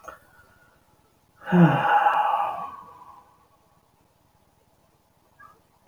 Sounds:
Sigh